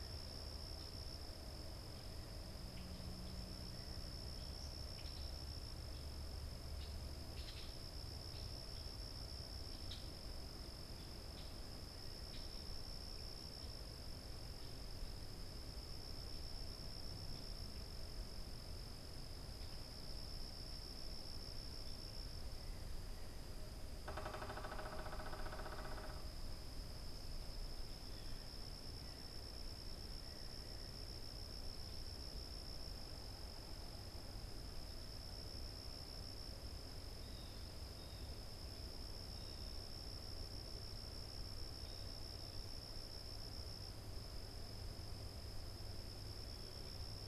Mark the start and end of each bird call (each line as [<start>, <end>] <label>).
[0.00, 13.35] Common Grackle (Quiscalus quiscula)
[23.75, 26.35] unidentified bird
[37.05, 42.35] Blue Jay (Cyanocitta cristata)